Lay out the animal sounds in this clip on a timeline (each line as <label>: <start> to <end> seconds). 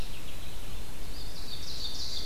Red-eyed Vireo (Vireo olivaceus): 0.0 to 2.3 seconds
Ovenbird (Seiurus aurocapilla): 0.8 to 2.3 seconds